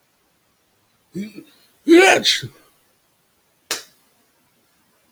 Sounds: Sneeze